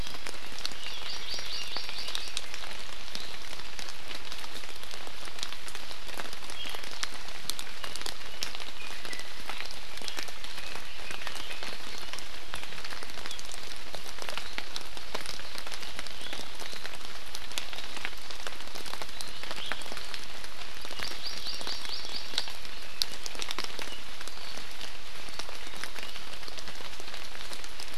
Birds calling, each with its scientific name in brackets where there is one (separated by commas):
Hawaii Amakihi (Chlorodrepanis virens), Iiwi (Drepanis coccinea)